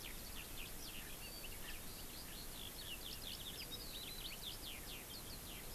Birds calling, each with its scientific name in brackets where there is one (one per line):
Eurasian Skylark (Alauda arvensis)